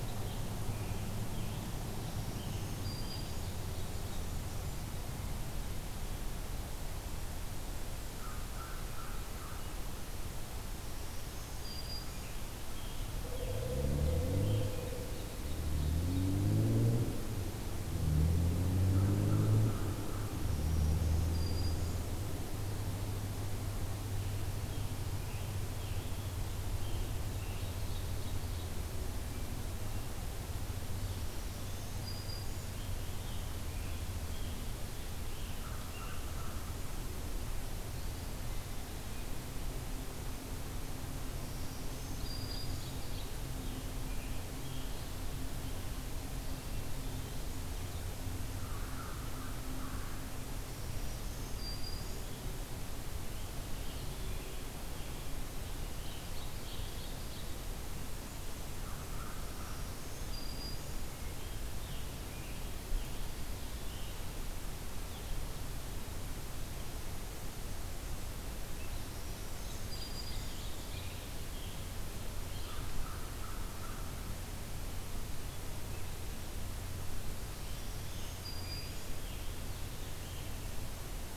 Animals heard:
Black-throated Green Warbler (Setophaga virens), Scarlet Tanager (Piranga olivacea), Downy Woodpecker (Dryobates pubescens), American Crow (Corvus brachyrhynchos), Ovenbird (Seiurus aurocapilla), Blackpoll Warbler (Setophaga striata)

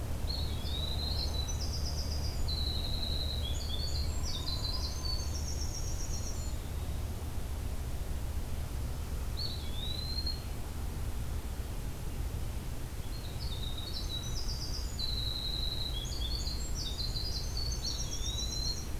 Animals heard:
Winter Wren (Troglodytes hiemalis), Hairy Woodpecker (Dryobates villosus), Eastern Wood-Pewee (Contopus virens), Black-throated Green Warbler (Setophaga virens)

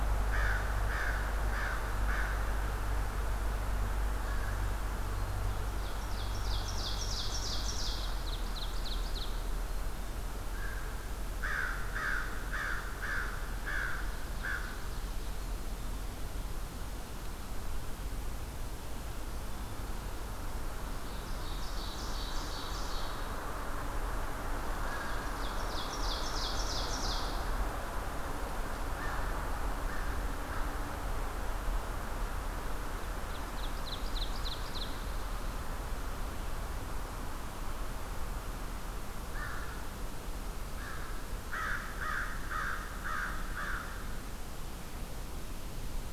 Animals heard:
Ovenbird (Seiurus aurocapilla), American Crow (Corvus brachyrhynchos)

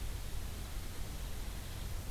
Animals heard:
Hairy Woodpecker (Dryobates villosus)

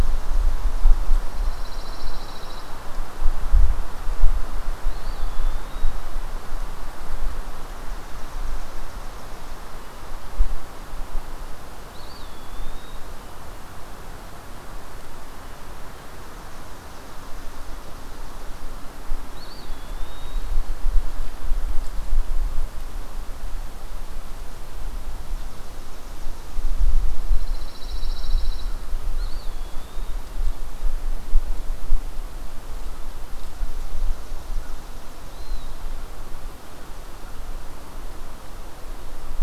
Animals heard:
Eastern Wood-Pewee (Contopus virens), Pine Warbler (Setophaga pinus)

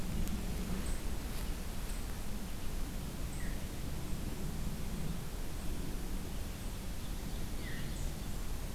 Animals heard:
Veery (Catharus fuscescens)

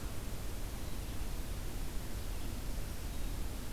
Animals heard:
Black-throated Green Warbler (Setophaga virens)

